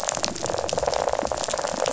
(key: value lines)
label: biophony
recorder: SoundTrap 500

label: biophony, rattle
recorder: SoundTrap 500